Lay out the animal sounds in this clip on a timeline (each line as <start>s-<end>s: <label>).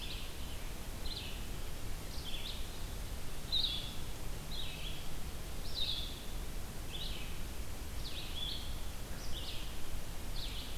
0.0s-10.8s: Red-eyed Vireo (Vireo olivaceus)
3.4s-10.8s: Blue-headed Vireo (Vireo solitarius)